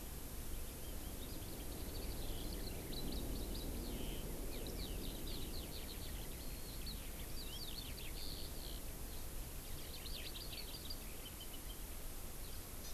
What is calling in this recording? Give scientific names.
Alauda arvensis, Chlorodrepanis virens